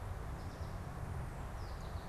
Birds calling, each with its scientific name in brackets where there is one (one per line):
American Goldfinch (Spinus tristis)